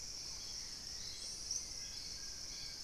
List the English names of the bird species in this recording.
Hauxwell's Thrush, Purple-throated Fruitcrow, Collared Trogon